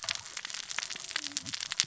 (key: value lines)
label: biophony, cascading saw
recorder: SoundTrap 600 or HydroMoth